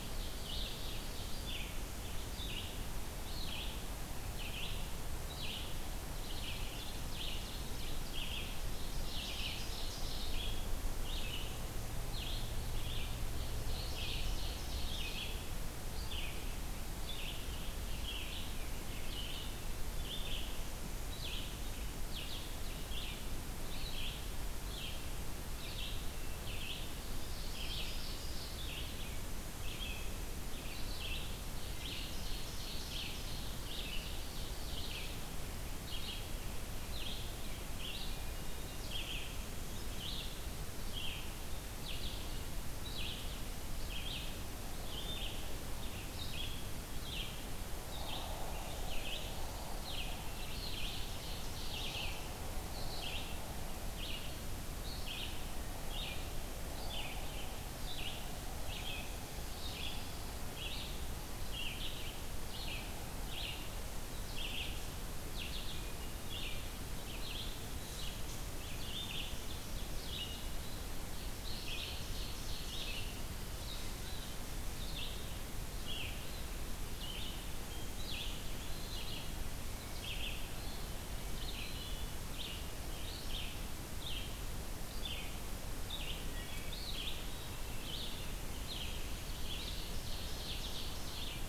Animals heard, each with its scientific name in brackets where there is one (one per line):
Pine Warbler (Setophaga pinus)
Black-and-white Warbler (Mniotilta varia)
Ovenbird (Seiurus aurocapilla)
Hermit Thrush (Catharus guttatus)
Wood Thrush (Hylocichla mustelina)
Red-eyed Vireo (Vireo olivaceus)